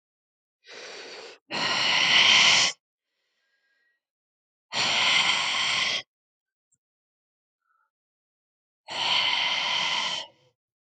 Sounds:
Sigh